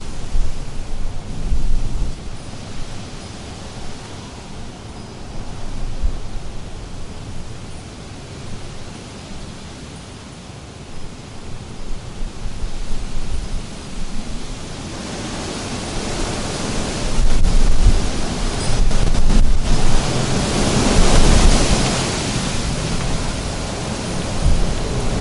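A gusty wind blows strongly through a narrow alley, causing trees to fall and produce a crackling sound. 0:00.1 - 0:14.5
A raging storm with crackling sounds. 0:14.7 - 0:25.2

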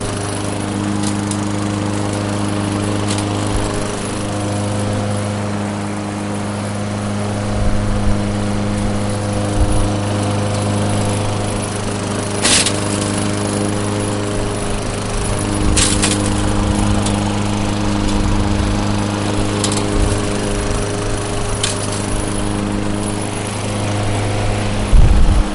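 A lawnmower is steadily mowing the lawn. 0:00.0 - 0:25.5
A short metallic rustling. 0:12.3 - 0:12.9
A short metallic rustling. 0:15.6 - 0:16.3

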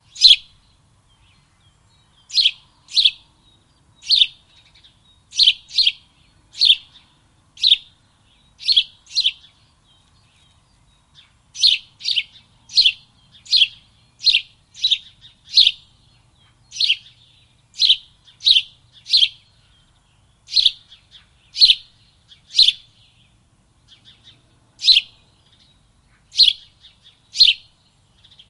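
A bird chirps. 0:00.0 - 0:28.5
Light wind blowing. 0:00.0 - 0:28.5

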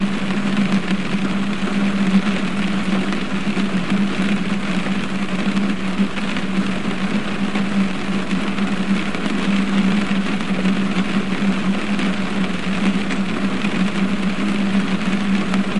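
Water rains on a roof. 0:00.0 - 0:15.8

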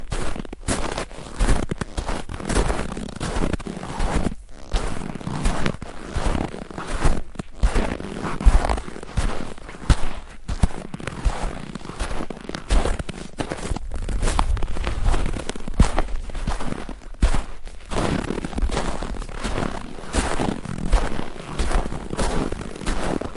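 Footsteps on hard-packed snow. 0:00.0 - 0:23.4

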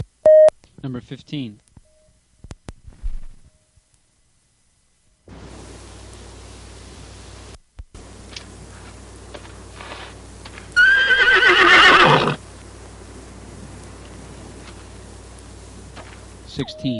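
A short, constant beep sounds like a radio or transmitter opening. 0:00.3 - 0:00.5
A man is speaking, saying a number in a moderate voice. 0:00.8 - 0:01.7
Static noise with a brief pause, mixed with a short sound resembling paper rustling. 0:05.3 - 0:10.7
A horse neighs, starting in a low voice and then increasing in tone. 0:10.8 - 0:12.4
Constant static noise. 0:12.4 - 0:16.5
A small, low beep is followed by a man speaking. 0:16.5 - 0:17.0

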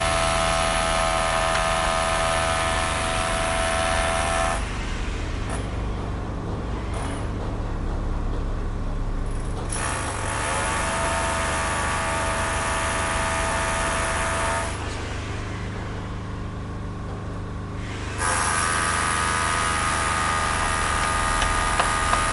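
Drills are running continuously and loudly nearby. 0:00.0 - 0:04.7
Builders constructing, with echoing sounds in the distance. 0:04.7 - 0:09.8
A drill is running continuously and loudly nearby. 0:09.8 - 0:14.9
A drill slows down and echoes in the distance. 0:14.9 - 0:18.3
A drill is operating loudly and continuously nearby. 0:18.2 - 0:22.3

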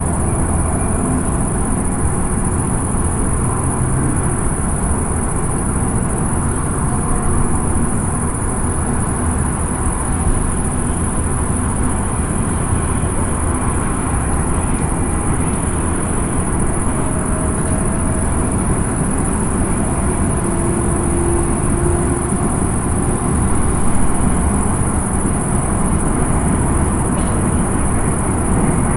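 Crickets chirp continuously in a rhythmic pattern in the background. 0:00.0 - 0:29.0
A train is moving away in the background. 0:17.0 - 0:29.0

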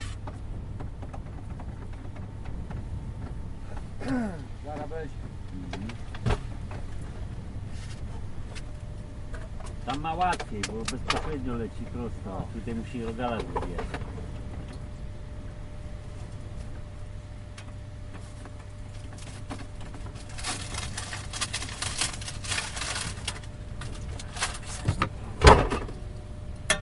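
Rumbling in the background. 0:00.0 - 0:26.8
A man coughs. 0:03.9 - 0:04.4
Two men are having a quiet conversation in the background. 0:04.4 - 0:06.5
A man is speaking quietly in the background. 0:09.8 - 0:14.4
The sound of a paper bag being opened. 0:20.0 - 0:23.5
The sound of a paper bag being opened. 0:24.1 - 0:25.2
A very loud, muffled sound. 0:25.3 - 0:25.9
A loud metallic sound. 0:26.6 - 0:26.8

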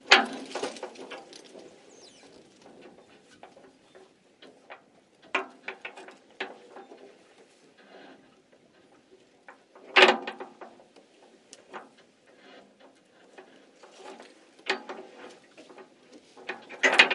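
Metallic rattling. 0:00.0 - 0:01.9
A soft, light metallic rattling sound with occasional pauses. 0:03.4 - 0:08.3
A crisp metallic rattling with pauses. 0:09.4 - 0:12.0
Metallic rattling sounds repeating rapidly. 0:13.3 - 0:17.1

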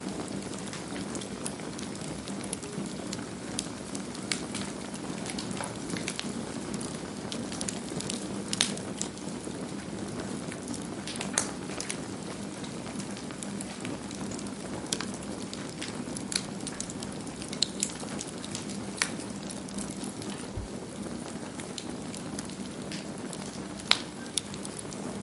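Crackling and burning sounds of a campfire. 0:00.0 - 0:25.2

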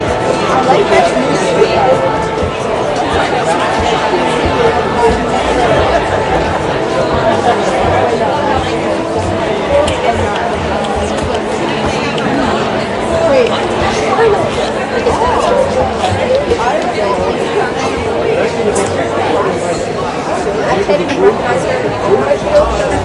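People are talking loudly in a crowded place with birds chirping in the background. 0:00.1 - 0:23.0

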